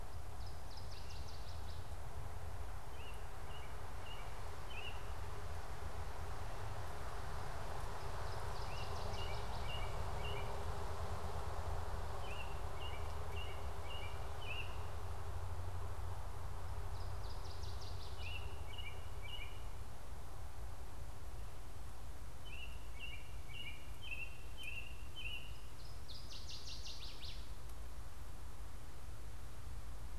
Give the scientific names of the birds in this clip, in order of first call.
Parkesia noveboracensis, Turdus migratorius